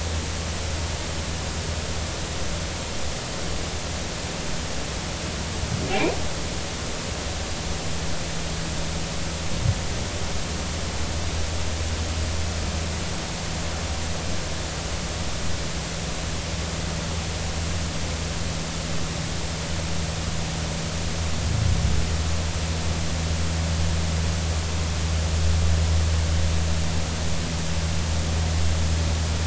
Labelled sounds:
5.9	6.1	humpback whale, 2.1 to 2.6 kHz

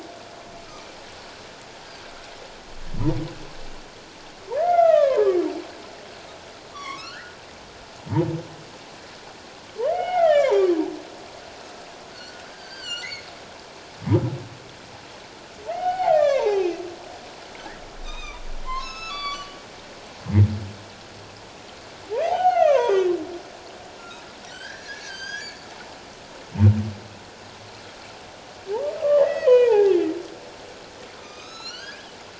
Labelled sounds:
4.6	5.3	humpback whale, 0.81 to 2.8 kHz
6.7	7.4	humpback whale, 0.97 to 5.8 kHz
9.8	10.7	humpback whale, 0.78 to 3.0 kHz
12.1	13.3	humpback whale, 1.3 to 7.7 kHz
15.6	16.7	humpback whale, 0.78 to 6.1 kHz
18.0	19.5	humpback whale, 0.94 to 8.0 kHz
22.2	23.1	humpback whale, 0.78 to 6.6 kHz
24.5	25.7	humpback whale, 1.4 to 7.1 kHz
29.0	30.0	humpback whale, 0.78 to 3.3 kHz
31.2	32.1	humpback whale, 1.2 to 7.1 kHz

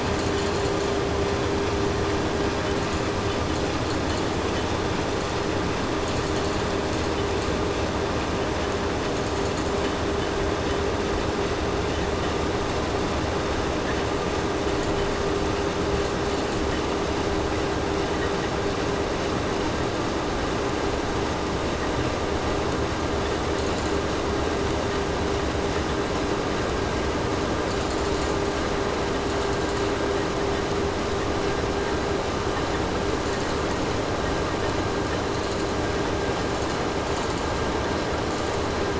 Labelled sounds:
0.1	1.0	vessel noise, 4.0 to 8.0 kHz
2.7	5.5	vessel noise, 3.5 to 8.0 kHz
5.9	7.6	vessel noise, 4.0 to 8.0 kHz
9.0	10.0	vessel noise, 4.0 to 8.0 kHz
14.7	14.9	vessel noise, 4.3 to 8.0 kHz
16.0	16.9	vessel noise, 3.7 to 8.0 kHz
23.4	24.3	vessel noise, 3.3 to 8.0 kHz
27.6	28.6	vessel noise, 3.6 to 8.0 kHz
29.2	30.1	vessel noise, 3.2 to 8.0 kHz
33.1	34.1	vessel noise, 3.8 to 8.0 kHz
35.2	35.8	vessel noise, 3.7 to 8.0 kHz
36.3	37.5	vessel noise, 3.7 to 8.0 kHz
38.3	38.7	vessel noise, 3.8 to 8.0 kHz

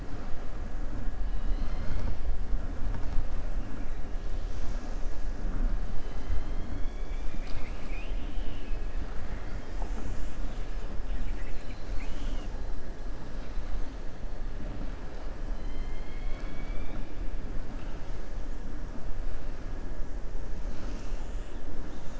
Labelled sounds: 15.5	17.1	killer whale, southern resident, 1.1 to 5.2 kHz

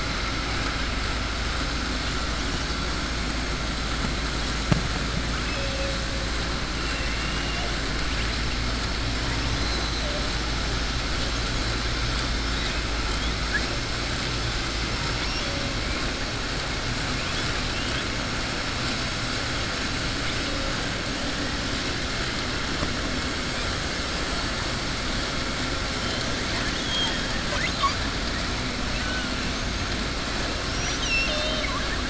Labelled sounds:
6.8	7.7	killer whale, southern resident, 1.8 to 3.5 kHz
26.4	27.3	killer whale, southern resident, 0.89 to 3.8 kHz
30.6	32.0	killer whale, southern resident, 0.61 to 6.3 kHz

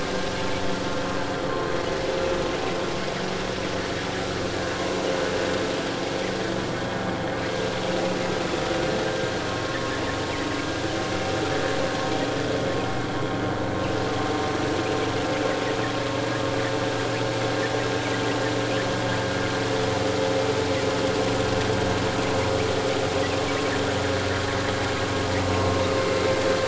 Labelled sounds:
9.0	9.8	vessel noise, 1.0 to 1.6 kHz

